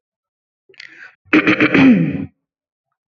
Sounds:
Throat clearing